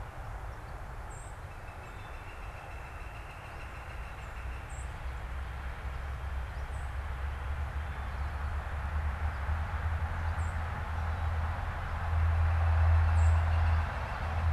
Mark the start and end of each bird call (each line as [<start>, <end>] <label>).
[0.94, 13.54] Song Sparrow (Melospiza melodia)
[1.24, 4.84] Northern Flicker (Colaptes auratus)
[12.04, 14.44] Northern Flicker (Colaptes auratus)